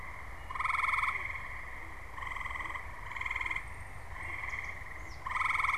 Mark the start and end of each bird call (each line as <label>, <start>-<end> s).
Swamp Sparrow (Melospiza georgiana), 3.4-5.8 s